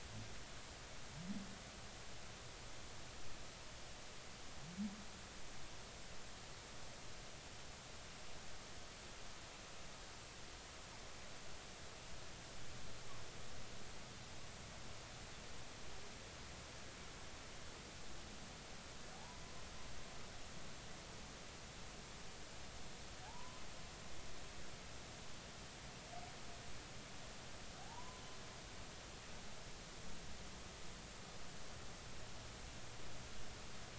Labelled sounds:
19.1	19.4	humpback whale, 0.80 to 1.0 kHz
23.2	23.6	humpback whale, 0.80 to 1.1 kHz
27.8	28.2	humpback whale, 0.80 to 1.1 kHz

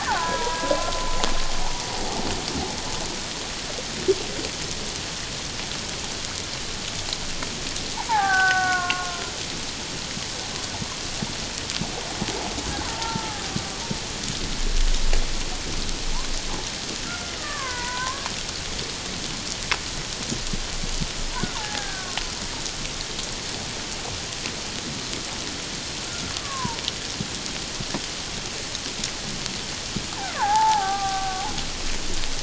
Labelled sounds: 0.1	1.1	killer whale, Bigg's (transient), 0.81 to 1.7 kHz
8.1	9.3	killer whale, Bigg's (transient), 0.78 to 1.9 kHz
12.8	13.4	killer whale, Bigg's (transient), 0.84 to 1.4 kHz
17.0	18.3	killer whale, Bigg's (transient), 0.91 to 2.2 kHz
21.5	22.2	killer whale, Bigg's (transient), 0.78 to 1.8 kHz
26.4	26.8	killer whale, Bigg's (transient), 0.84 to 1.2 kHz
30.3	31.4	killer whale, Bigg's (transient), 0.78 to 1.8 kHz

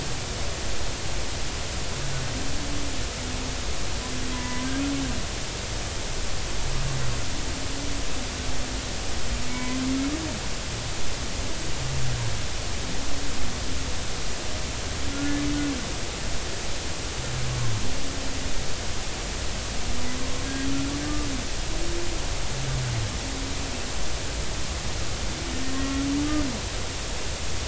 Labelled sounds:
4.3	4.7	humpback whale, 0.93 to 2.1 kHz
9.5	9.8	humpback whale, 0.93 to 2.3 kHz
15.1	15.4	humpback whale, 1.3 to 1.5 kHz
25.8	26.0	humpback whale, 1.3 to 1.4 kHz

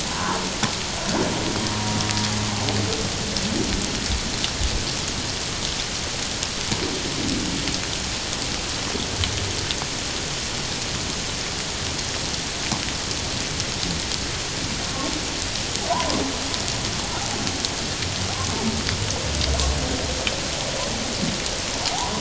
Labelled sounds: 0.1	0.4	humpback whale, 0.88 to 1.2 kHz
15.9	16.2	humpback whale, 0.78 to 1.1 kHz
21.9	22.2	humpback whale, 0.78 to 1.1 kHz

